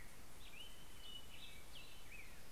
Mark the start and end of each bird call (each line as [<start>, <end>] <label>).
[0.00, 2.51] Black-headed Grosbeak (Pheucticus melanocephalus)
[0.54, 2.51] Hermit Thrush (Catharus guttatus)